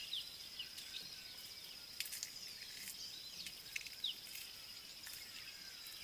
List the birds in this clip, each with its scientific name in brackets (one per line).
Scarlet-chested Sunbird (Chalcomitra senegalensis)